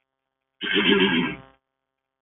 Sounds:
Throat clearing